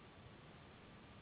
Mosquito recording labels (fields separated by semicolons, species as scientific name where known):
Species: Anopheles gambiae s.s.; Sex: female; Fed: unfed; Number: one; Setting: insect culture